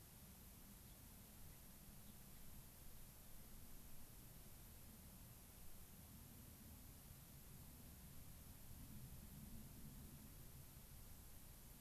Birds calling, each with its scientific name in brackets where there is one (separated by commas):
Gray-crowned Rosy-Finch (Leucosticte tephrocotis)